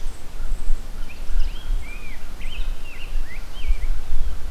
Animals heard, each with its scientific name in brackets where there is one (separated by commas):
Rose-breasted Grosbeak (Pheucticus ludovicianus)